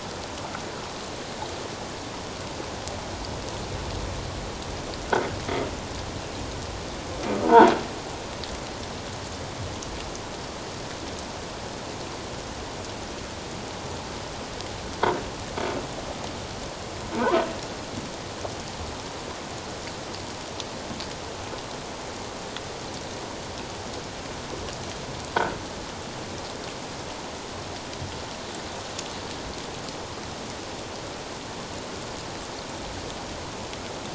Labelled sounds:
7.4	7.7	croaking sound likely from a nearby submerged object, 0.84 to 1.7 kHz
17.1	17.4	croaking sound likely from a nearby submerged object, 0.84 to 1.2 kHz

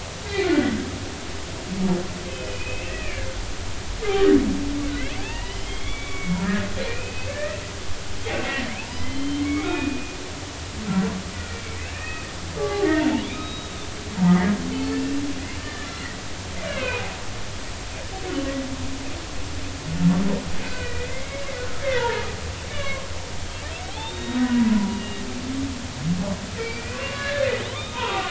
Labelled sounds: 0.3	0.9	humpback whale, 1.4 to 4.4 kHz
2.3	4.3	humpback whale, 1.1 to 2.8 kHz
5.2	7.6	humpback whale, 0.80 to 3.5 kHz
8.5	10.2	humpback whale, 1.0 to 3.8 kHz
11.3	12.3	humpback whale, 1.2 to 2.6 kHz
12.6	12.9	humpback whale, 0.80 to 1.2 kHz
13.2	13.7	humpback whale, 3.3 to 3.9 kHz
15.0	16.2	humpback whale, 1.7 to 2.8 kHz
16.6	17.1	humpback whale, 0.90 to 2.9 kHz
20.6	21.4	humpback whale, 1.4 to 2.6 kHz
21.8	22.2	humpback whale, 0.86 to 1.8 kHz
22.7	23.1	humpback whale, 1.0 to 2.9 kHz
23.9	24.6	humpback whale, 0.80 to 3.9 kHz
26.6	28.2	humpback whale, 0.80 to 4.1 kHz

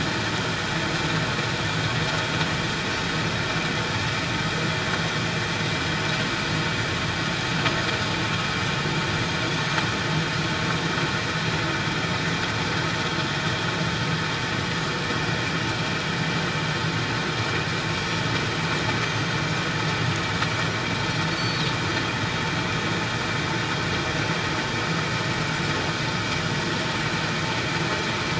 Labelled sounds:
9.5	9.8	Pacific white-sided dolphin, 6.2 to 6.6 kHz
17.9	18.2	Pacific white-sided dolphin, 5.5 to 5.9 kHz
19.0	19.4	Pacific white-sided dolphin, 6.0 to 6.3 kHz
21.3	21.6	Pacific white-sided dolphin, 4.3 to 4.6 kHz

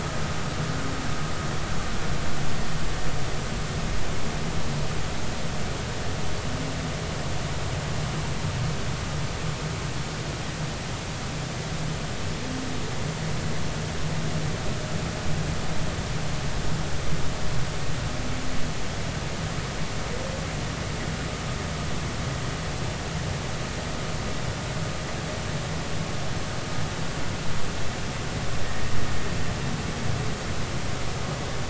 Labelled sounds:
28.7	28.9	humpback whale, 1.8 to 1.9 kHz

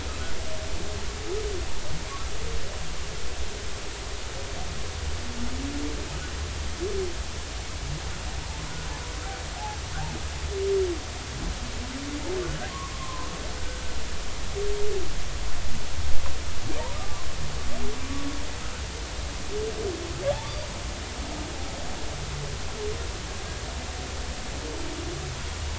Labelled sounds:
9.5	9.8	humpback whale, 0.80 to 0.93 kHz
12.9	13.3	humpback whale, 0.90 to 1.1 kHz
16.9	17.3	humpback whale, 0.93 to 1.3 kHz

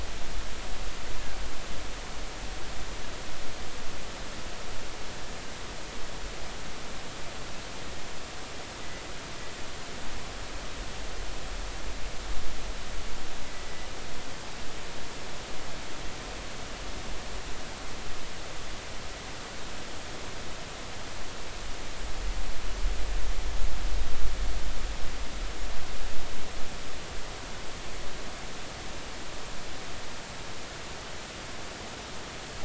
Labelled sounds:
13.6	13.9	killer whale, offshore, 1.95 to 2.02 kHz

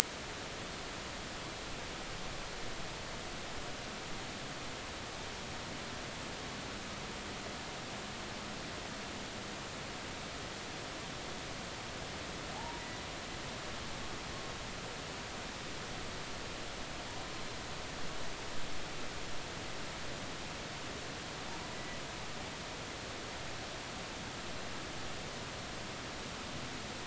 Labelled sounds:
12.5	12.8	humpback whale, 0.80 to 0.99 kHz

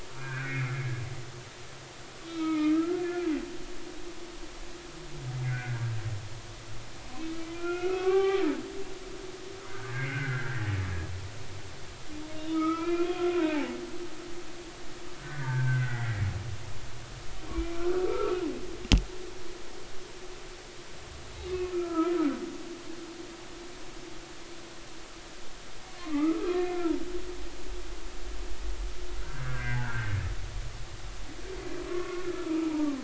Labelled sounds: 0.2	0.9	humpback whale, 1.4 to 2.6 kHz
2.3	3.0	humpback whale, 0.86 to 2.4 kHz
5.3	5.8	humpback whale, 1.4 to 2.2 kHz
7.5	8.4	humpback whale, 0.80 to 3.6 kHz
9.7	10.6	humpback whale, 1.3 to 2.3 kHz
12.3	13.7	humpback whale, 0.80 to 3.4 kHz
15.2	16.2	humpback whale, 0.83 to 2.1 kHz
17.5	18.4	humpback whale, 1.1 to 2.4 kHz
21.7	22.1	humpback whale, 0.93 to 1.4 kHz
26.0	26.7	humpback whale, 1.0 to 2.7 kHz
29.3	30.1	humpback whale, 1.3 to 2.1 kHz
31.9	33.0	humpback whale, 0.80 to 1.5 kHz

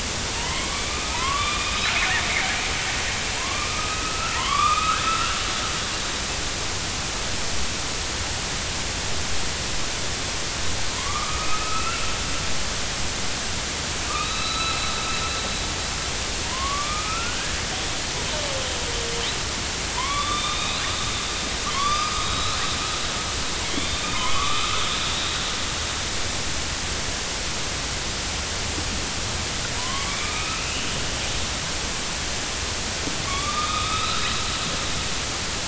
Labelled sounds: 0.4	2.9	killer whale, northern resident, A clan, AB subclan, 0.86 to 4.1 kHz
3.4	5.4	killer whale, northern resident, A clan, AB subclan, 0.86 to 4.0 kHz
10.9	12.0	killer whale, northern resident, A clan, AB subclan, 0.93 to 2.8 kHz
14.1	14.9	killer whale, northern resident, A clan, AB subclan, 1.1 to 4.0 kHz
16.4	17.6	killer whale, northern resident, A clan, AB subclan, 0.90 to 2.5 kHz
19.9	20.8	killer whale, northern resident, A clan, AB subclan, 0.90 to 4.2 kHz
21.7	22.6	killer whale, northern resident, A clan, AB subclan, 0.99 to 6.2 kHz
23.7	24.8	killer whale, northern resident, A clan, AB subclan, 0.99 to 3.7 kHz
29.8	30.9	killer whale, northern resident, A clan, AB subclan, 0.93 to 3.0 kHz
33.3	34.4	killer whale, northern resident, A clan, AB subclan, 1.1 to 4.1 kHz

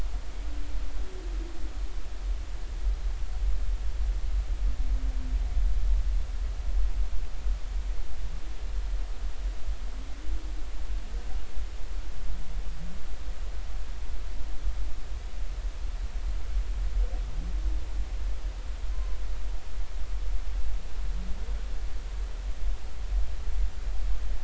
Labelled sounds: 18.9	19.2	humpback whale, 0.96 to 1.1 kHz

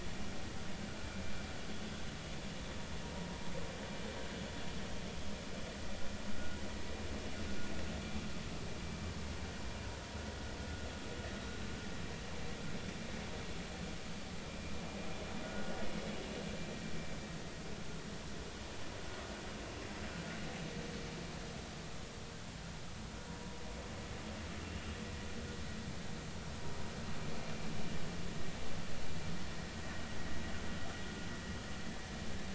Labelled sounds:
15.4	15.8	vessel noise, 1.4 to 1.6 kHz

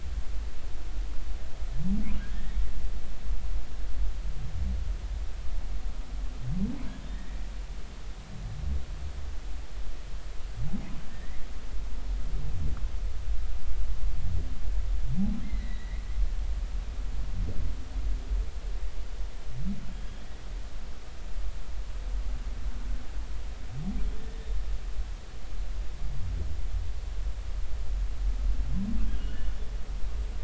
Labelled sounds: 7.1	7.4	humpback whale, 1.7 to 2.0 kHz
11.1	11.4	humpback whale, 1.8 to 2.2 kHz
15.4	16.0	humpback whale, 1.9 to 4.1 kHz
19.9	20.3	humpback whale, 3.1 to 3.4 kHz
29.2	29.5	humpback whale, 2.8 to 3.0 kHz

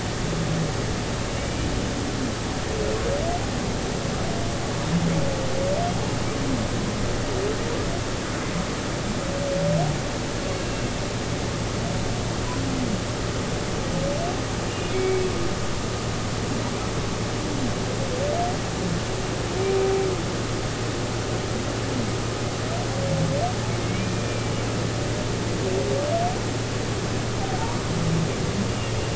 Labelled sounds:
1.4	1.7	humpback whale, 2.2 to 2.4 kHz
14.9	15.3	humpback whale, 2.1 to 2.3 kHz
23.8	24.5	humpback whale, 2.1 to 2.5 kHz

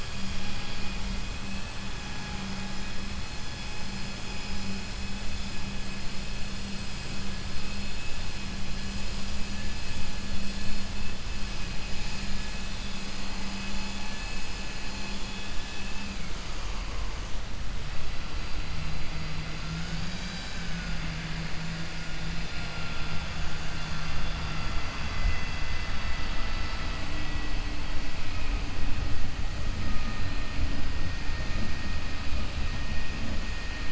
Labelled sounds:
15.7	16.1	vessel noise, 1.7 to 3.6 kHz

